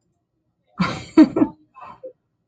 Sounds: Laughter